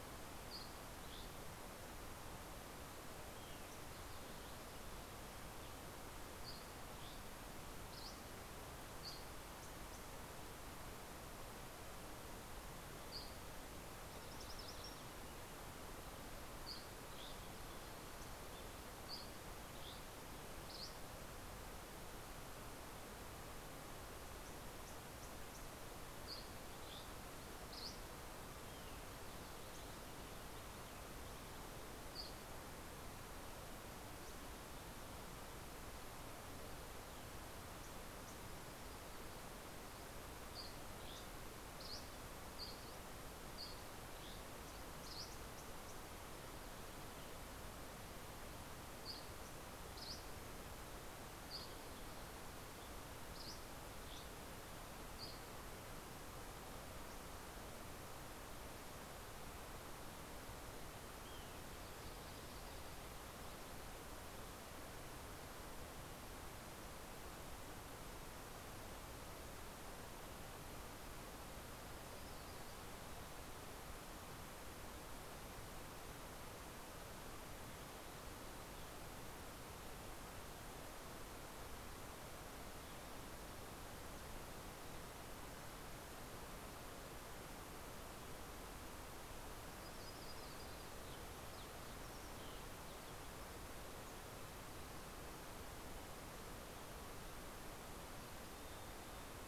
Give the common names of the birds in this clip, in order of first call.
Dusky Flycatcher, MacGillivray's Warbler, Mountain Chickadee